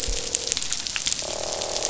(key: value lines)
label: biophony, croak
recorder: SoundTrap 500